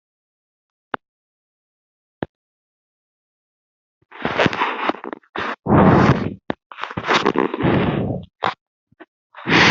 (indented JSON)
{
  "expert_labels": [
    {
      "quality": "no cough present",
      "dyspnea": false,
      "wheezing": false,
      "stridor": false,
      "choking": false,
      "congestion": false,
      "nothing": false
    }
  ],
  "gender": "female",
  "respiratory_condition": true,
  "fever_muscle_pain": true,
  "status": "healthy"
}